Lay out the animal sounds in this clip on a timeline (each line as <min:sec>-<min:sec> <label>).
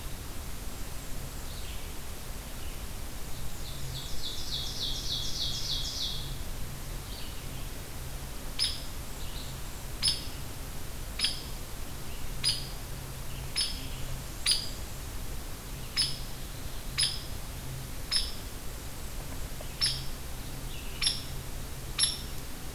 0:00.0-0:16.3 Red-eyed Vireo (Vireo olivaceus)
0:03.2-0:06.4 Ovenbird (Seiurus aurocapilla)
0:03.3-0:04.7 Blackburnian Warbler (Setophaga fusca)
0:08.4-0:08.9 Hairy Woodpecker (Dryobates villosus)
0:09.9-0:10.4 Hairy Woodpecker (Dryobates villosus)
0:11.1-0:11.5 Hairy Woodpecker (Dryobates villosus)
0:12.4-0:12.7 Hairy Woodpecker (Dryobates villosus)
0:13.4-0:13.8 Hairy Woodpecker (Dryobates villosus)
0:13.8-0:15.5 Blackburnian Warbler (Setophaga fusca)
0:14.4-0:14.8 Hairy Woodpecker (Dryobates villosus)
0:16.8-0:17.3 Hairy Woodpecker (Dryobates villosus)
0:18.0-0:18.4 Hairy Woodpecker (Dryobates villosus)
0:19.7-0:20.0 Hairy Woodpecker (Dryobates villosus)
0:20.9-0:21.3 Hairy Woodpecker (Dryobates villosus)
0:21.9-0:22.2 Hairy Woodpecker (Dryobates villosus)